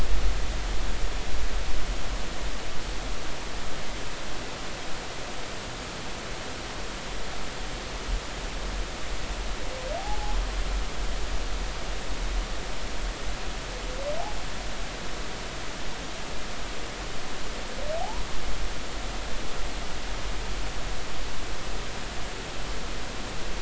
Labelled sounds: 10.0	10.4	humpback whale, 0.80 to 0.90 kHz
18.0	18.2	humpback whale, 0.80 to 1.1 kHz

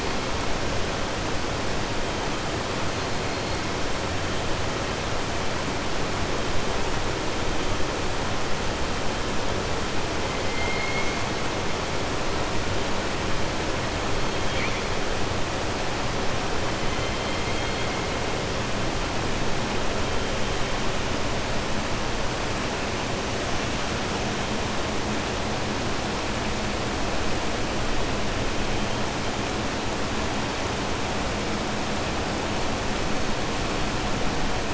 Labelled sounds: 10.4	11.1	killer whale, southern resident, 2.0 to 3.1 kHz

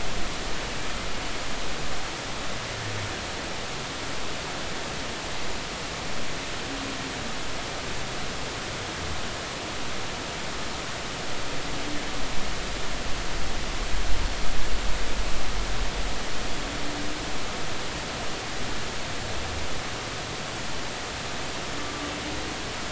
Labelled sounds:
21.8	22.1	humpback whale, 1.1 to 1.2 kHz

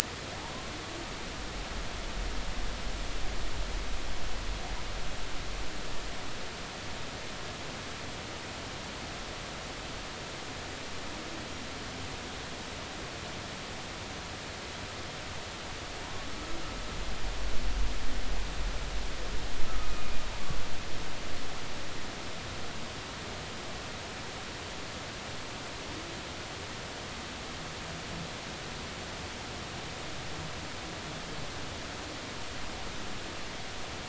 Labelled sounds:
19.8	20.1	humpback whale, 2.4 to 2.5 kHz

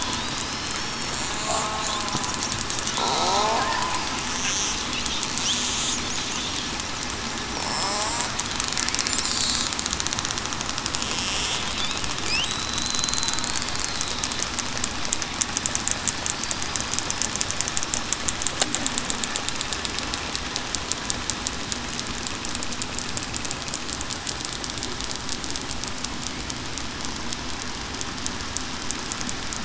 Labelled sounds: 0.8	1.3	killer whale, southern resident, 5.4 to 5.6 kHz
3.2	3.6	killer whale, southern resident, 0.63 to 0.98 kHz
7.8	8.3	killer whale, southern resident, 0.73 to 0.98 kHz
12.4	13.4	killer whale, southern resident, 3.8 to 4.1 kHz

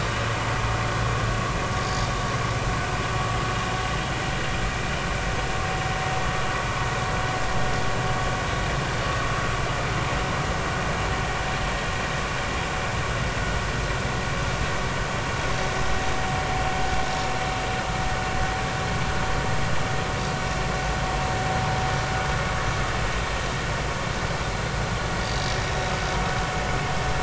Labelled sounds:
25.6	25.9	vessel noise, 3.7 to 3.9 kHz

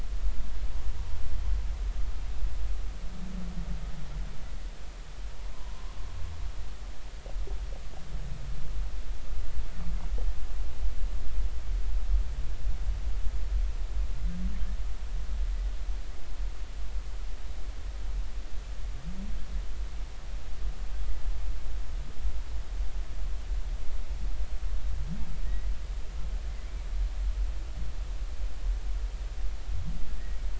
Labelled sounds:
5.5	6.0	humpback whale, 0.90 to 1.1 kHz
25.4	25.7	humpback whale, 1.8 to 2.1 kHz

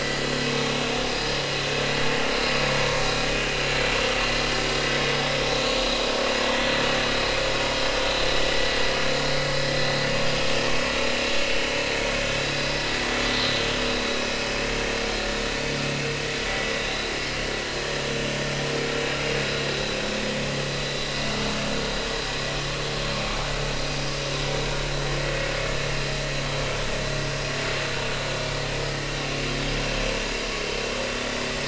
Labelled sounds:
16.7	17.2	vessel noise, 3.6 to 4.1 kHz
19.7	20.0	vessel noise, 3.8 to 4.1 kHz

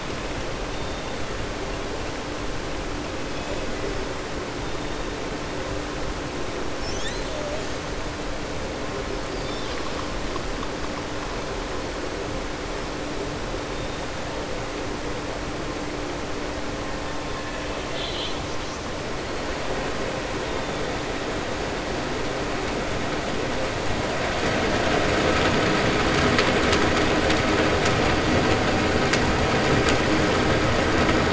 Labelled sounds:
9.3	9.8	killer whale, southern resident, 2.5 to 5.4 kHz
17.8	18.4	killer whale, southern resident, 2.0 to 4.3 kHz

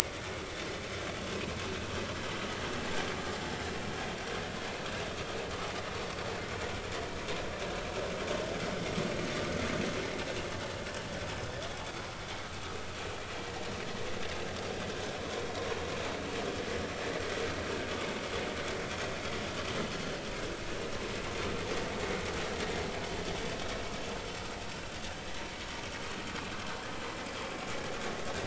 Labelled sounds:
11.3	11.6	vessel noise, 5.1 to 5.3 kHz

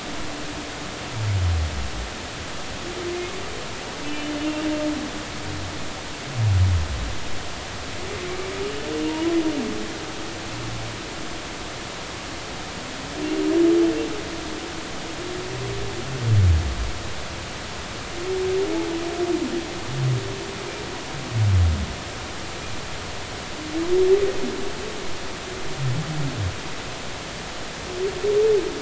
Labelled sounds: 4.1	4.3	humpback whale, 2.9 to 3.0 kHz
9.1	9.3	humpback whale, 0.90 to 1.1 kHz

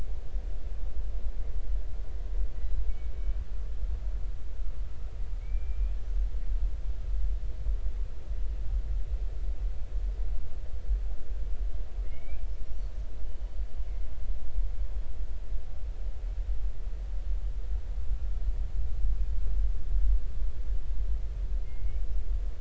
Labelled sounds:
2.9	3.1	killer whale, northern resident, 2.2 to 2.3 kHz
5.4	6.0	killer whale, northern resident, 2.1 to 2.5 kHz
12.0	12.4	killer whale, northern resident, 1.8 to 2.6 kHz
13.2	13.5	killer whale, northern resident, 3.0 to 3.1 kHz
21.6	22.0	killer whale, northern resident, 2.1 to 2.4 kHz

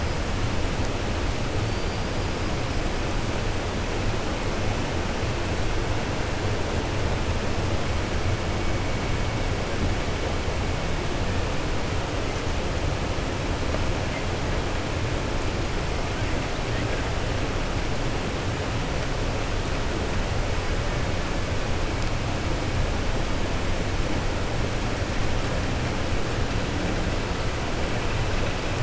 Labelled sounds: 1.6	2.0	killer whale, 4.5 to 4.9 kHz

